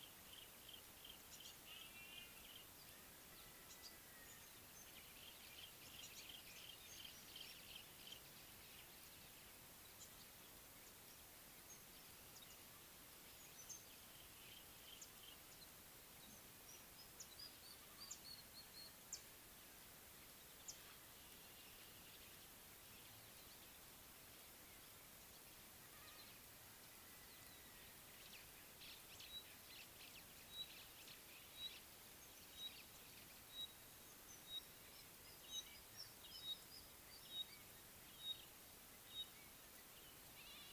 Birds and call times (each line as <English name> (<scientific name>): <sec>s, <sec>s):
Rufous Chatterer (Argya rubiginosa): 4.3s, 17.4s, 36.0s
Yellow-breasted Apalis (Apalis flavida): 6.6s
Beautiful Sunbird (Cinnyris pulchellus): 19.1s
Pygmy Batis (Batis perkeo): 33.6s, 39.2s